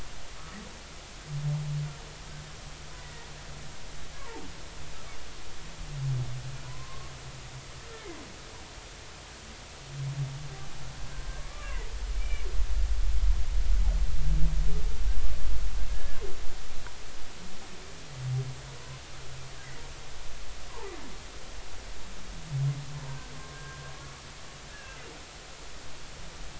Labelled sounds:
3.0	3.3	humpback whale, 1.8 to 2.0 kHz
4.1	4.4	humpback whale, 0.80 to 1.2 kHz
6.6	7.1	humpback whale, 0.93 to 1.1 kHz
11.4	12.5	humpback whale, 0.86 to 2.4 kHz
15.9	16.2	humpback whale, 1.5 to 1.8 kHz
23.5	23.8	humpback whale, 1.5 to 1.7 kHz
24.7	25.0	humpback whale, 1.6 to 1.8 kHz

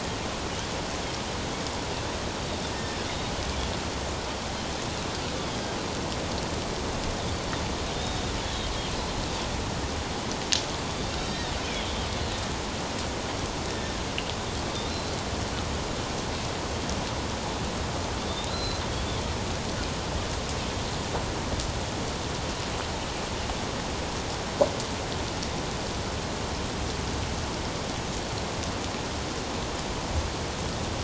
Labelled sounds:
2.7	3.0	Pacific white-sided dolphin, 1.7 to 1.9 kHz
8.0	8.3	Pacific white-sided dolphin, 3.5 to 3.8 kHz
11.2	11.5	Pacific white-sided dolphin, 1.8 to 4.0 kHz
13.7	14.0	Pacific white-sided dolphin, 1.7 to 1.8 kHz
18.3	18.8	Pacific white-sided dolphin, 3.4 to 4.2 kHz

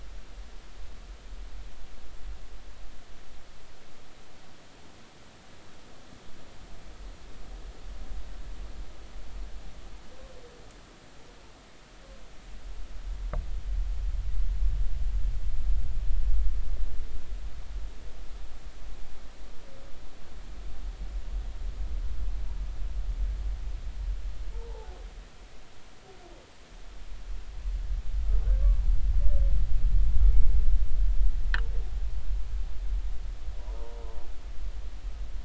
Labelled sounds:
24.5	25.0	humpback whale, 0.80 to 0.99 kHz

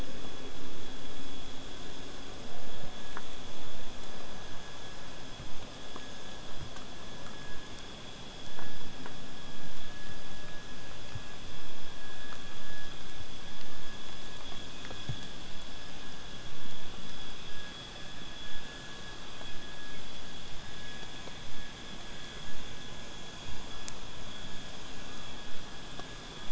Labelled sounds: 18.4	23.5	vessel noise, 0 to 8.0 kHz

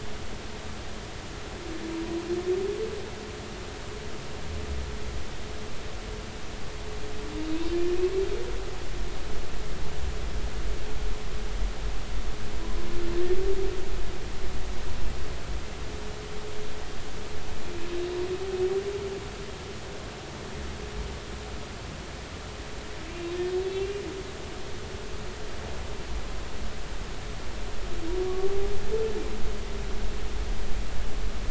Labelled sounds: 7.5	7.8	humpback whale, 2.5 to 2.8 kHz
23.1	24.0	humpback whale, 2.6 to 2.9 kHz

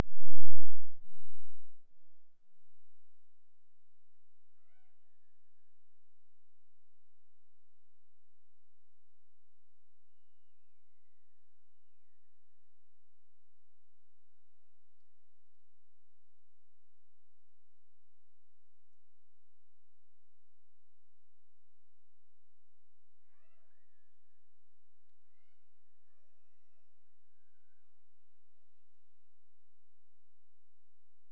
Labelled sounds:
0.0	1.4	killer whale, Bigg's (transient), Gulf of Alaska transient, 1.4 to 3.7 kHz
4.5	6.1	killer whale, Bigg's (transient), Gulf of Alaska transient, 0.43 to 4.7 kHz
10.1	12.7	killer whale, Bigg's (transient), Gulf of Alaska transient, 0.98 to 3.1 kHz
23.2	25.0	killer whale, Bigg's (transient), Gulf of Alaska transient, 0.41 to 2.8 kHz
25.3	29.4	killer whale, Bigg's (transient), Gulf of Alaska transient, 0.33 to 5.8 kHz

